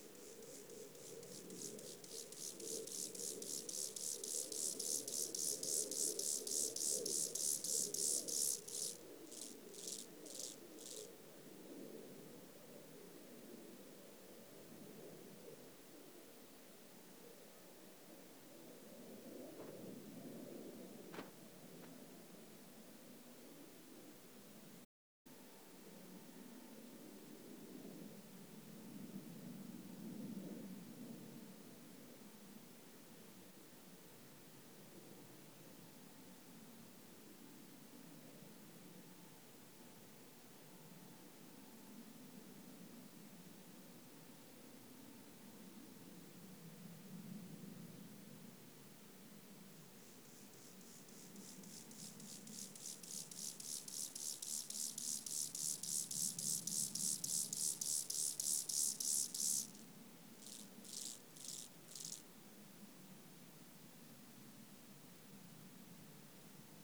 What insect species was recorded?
Chorthippus mollis